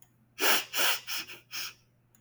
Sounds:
Sniff